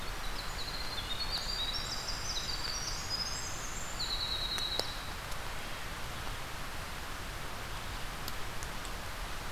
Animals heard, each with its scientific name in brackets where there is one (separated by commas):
Winter Wren (Troglodytes hiemalis)